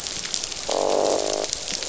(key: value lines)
label: biophony, croak
recorder: SoundTrap 500